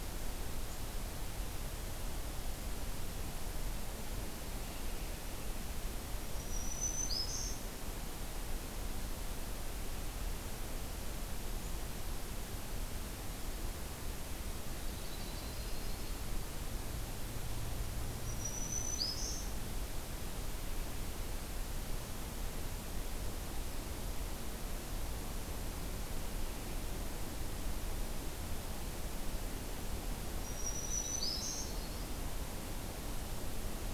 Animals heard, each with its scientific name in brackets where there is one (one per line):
Yellow-rumped Warbler (Setophaga coronata)
Black-throated Green Warbler (Setophaga virens)